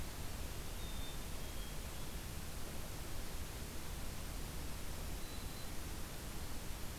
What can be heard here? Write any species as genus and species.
Poecile atricapillus, Setophaga virens